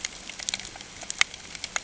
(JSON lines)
{"label": "ambient", "recorder": "HydroMoth"}